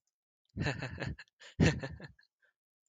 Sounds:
Laughter